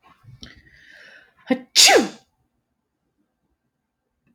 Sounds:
Sneeze